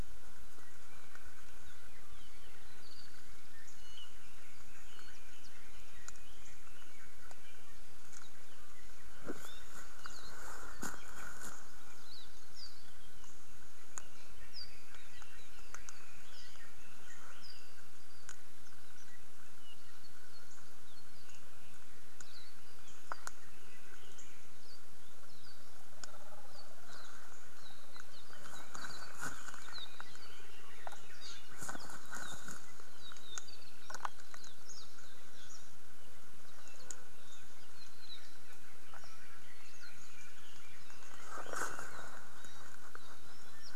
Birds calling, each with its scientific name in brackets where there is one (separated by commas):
Hawaii Akepa (Loxops coccineus)